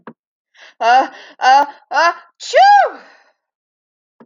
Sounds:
Sneeze